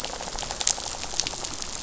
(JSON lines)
{"label": "biophony, rattle", "recorder": "SoundTrap 500"}